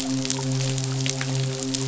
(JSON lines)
{"label": "biophony, midshipman", "recorder": "SoundTrap 500"}